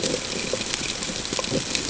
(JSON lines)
{"label": "ambient", "recorder": "HydroMoth"}